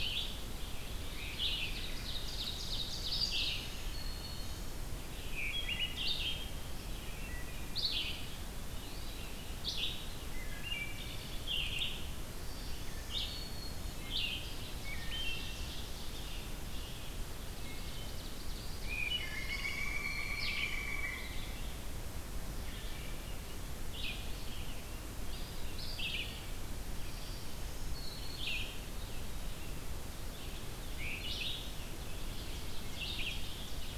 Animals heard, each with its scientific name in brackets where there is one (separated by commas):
Pileated Woodpecker (Dryocopus pileatus), Black-throated Green Warbler (Setophaga virens), Ovenbird (Seiurus aurocapilla), Wood Thrush (Hylocichla mustelina), Eastern Wood-Pewee (Contopus virens), Red-eyed Vireo (Vireo olivaceus)